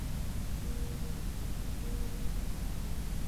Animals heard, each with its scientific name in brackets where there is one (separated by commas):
Mourning Dove (Zenaida macroura)